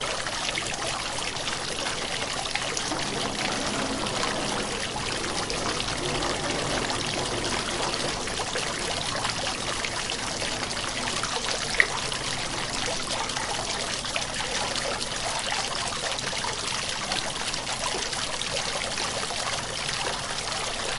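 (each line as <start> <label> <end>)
0.0 Water running and splashing in a fountain. 21.0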